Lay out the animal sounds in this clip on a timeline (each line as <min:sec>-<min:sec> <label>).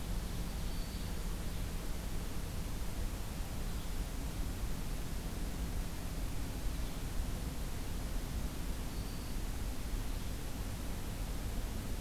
0:00.0-0:01.2 Ovenbird (Seiurus aurocapilla)
0:08.8-0:09.4 Black-throated Green Warbler (Setophaga virens)